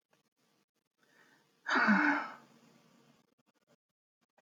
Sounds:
Sigh